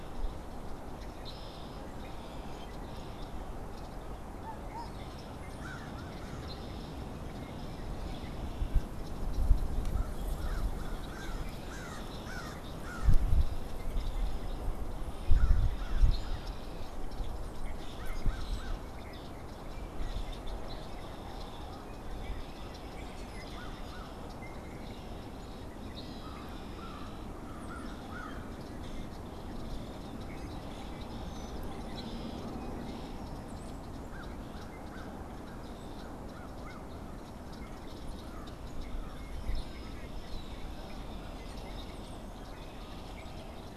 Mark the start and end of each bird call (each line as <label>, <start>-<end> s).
Red-winged Blackbird (Agelaius phoeniceus), 0.0-43.8 s
unidentified bird, 2.3-43.8 s
American Crow (Corvus brachyrhynchos), 5.2-6.7 s
American Crow (Corvus brachyrhynchos), 9.8-18.9 s
American Crow (Corvus brachyrhynchos), 23.2-29.0 s
Brown-headed Cowbird (Molothrus ater), 33.3-33.9 s
American Crow (Corvus brachyrhynchos), 34.0-40.2 s